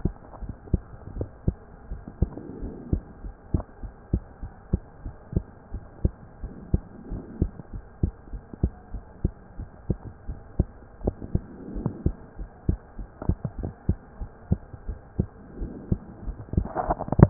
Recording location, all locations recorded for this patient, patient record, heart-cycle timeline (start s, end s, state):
pulmonary valve (PV)
aortic valve (AV)+pulmonary valve (PV)+tricuspid valve (TV)+mitral valve (MV)
#Age: Child
#Sex: Female
#Height: 153.0 cm
#Weight: 37.5 kg
#Pregnancy status: False
#Murmur: Absent
#Murmur locations: nan
#Most audible location: nan
#Systolic murmur timing: nan
#Systolic murmur shape: nan
#Systolic murmur grading: nan
#Systolic murmur pitch: nan
#Systolic murmur quality: nan
#Diastolic murmur timing: nan
#Diastolic murmur shape: nan
#Diastolic murmur grading: nan
#Diastolic murmur pitch: nan
#Diastolic murmur quality: nan
#Outcome: Normal
#Campaign: 2015 screening campaign
0.00	1.88	unannotated
1.88	2.02	S1
2.02	2.18	systole
2.18	2.34	S2
2.34	2.60	diastole
2.60	2.72	S1
2.72	2.90	systole
2.90	3.04	S2
3.04	3.20	diastole
3.20	3.34	S1
3.34	3.50	systole
3.50	3.64	S2
3.64	3.80	diastole
3.80	3.92	S1
3.92	4.12	systole
4.12	4.24	S2
4.24	4.40	diastole
4.40	4.52	S1
4.52	4.70	systole
4.70	4.82	S2
4.82	5.01	diastole
5.01	5.14	S1
5.14	5.32	systole
5.32	5.46	S2
5.46	5.70	diastole
5.70	5.82	S1
5.82	6.01	systole
6.01	6.18	S2
6.18	6.40	diastole
6.40	6.52	S1
6.52	6.70	systole
6.70	6.86	S2
6.86	7.10	diastole
7.10	7.24	S1
7.24	7.40	systole
7.40	7.52	S2
7.52	7.70	diastole
7.70	7.82	S1
7.82	8.00	systole
8.00	8.14	S2
8.14	8.30	diastole
8.30	8.42	S1
8.42	8.60	systole
8.60	8.74	S2
8.74	8.91	diastole
8.91	9.02	S1
9.02	9.20	systole
9.20	9.34	S2
9.34	9.56	diastole
9.56	9.68	S1
9.68	9.86	systole
9.86	10.00	S2
10.00	10.26	diastole
10.26	10.40	S1
10.40	10.55	systole
10.55	10.74	S2
10.74	11.02	diastole
11.02	11.16	S1
11.16	11.32	systole
11.32	11.46	S2
11.46	11.70	diastole
11.70	11.86	S1
11.86	12.01	systole
12.01	12.16	S2
12.16	12.35	diastole
12.35	12.48	S1
12.48	12.66	systole
12.66	12.80	S2
12.80	12.93	diastole
12.93	13.08	S1
13.08	13.26	systole
13.26	13.38	S2
13.38	13.58	diastole
13.58	13.74	S1
13.74	13.85	systole
13.85	14.00	S2
14.00	14.17	diastole
14.17	14.30	S1
14.30	14.48	systole
14.48	14.62	S2
14.62	14.84	diastole
14.84	14.98	S1
14.98	15.16	systole
15.16	15.30	S2
15.30	15.56	diastole
15.56	15.70	S1
15.70	15.90	systole
15.90	16.02	S2
16.02	16.24	diastole
16.24	16.38	S1
16.38	16.54	systole
16.54	16.68	S2
16.68	17.30	unannotated